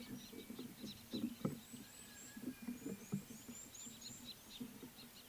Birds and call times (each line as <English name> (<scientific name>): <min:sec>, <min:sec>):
Red-cheeked Cordonbleu (Uraeginthus bengalus): 0:03.6